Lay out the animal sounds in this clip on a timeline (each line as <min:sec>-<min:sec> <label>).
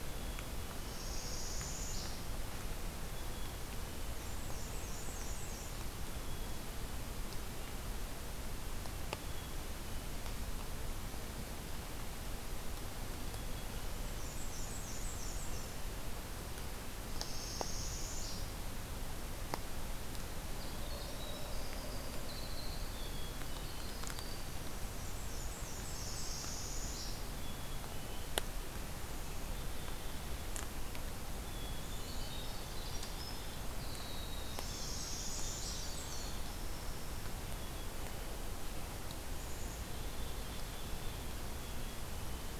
0:00.0-0:01.1 Black-capped Chickadee (Poecile atricapillus)
0:00.8-0:02.3 Northern Parula (Setophaga americana)
0:03.1-0:04.1 Black-capped Chickadee (Poecile atricapillus)
0:04.0-0:05.7 Black-and-white Warbler (Mniotilta varia)
0:06.0-0:06.6 Black-capped Chickadee (Poecile atricapillus)
0:09.1-0:10.1 Black-capped Chickadee (Poecile atricapillus)
0:13.2-0:14.2 Black-capped Chickadee (Poecile atricapillus)
0:13.9-0:15.7 Black-and-white Warbler (Mniotilta varia)
0:17.0-0:18.5 Northern Parula (Setophaga americana)
0:20.4-0:24.9 Winter Wren (Troglodytes hiemalis)
0:22.9-0:24.0 Black-capped Chickadee (Poecile atricapillus)
0:24.5-0:26.4 Black-and-white Warbler (Mniotilta varia)
0:25.8-0:27.3 Northern Parula (Setophaga americana)
0:27.3-0:28.2 Black-capped Chickadee (Poecile atricapillus)
0:29.0-0:30.3 Black-capped Chickadee (Poecile atricapillus)
0:31.4-0:33.1 Black-capped Chickadee (Poecile atricapillus)
0:31.6-0:37.4 Winter Wren (Troglodytes hiemalis)
0:34.5-0:35.8 Northern Parula (Setophaga americana)
0:35.0-0:36.4 Black-and-white Warbler (Mniotilta varia)
0:37.4-0:38.4 Black-capped Chickadee (Poecile atricapillus)
0:39.4-0:40.9 Black-capped Chickadee (Poecile atricapillus)
0:41.5-0:42.6 Black-capped Chickadee (Poecile atricapillus)